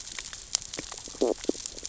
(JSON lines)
{"label": "biophony, stridulation", "recorder": "SoundTrap 600 or HydroMoth"}